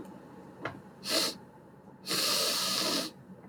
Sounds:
Sniff